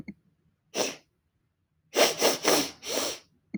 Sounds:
Sniff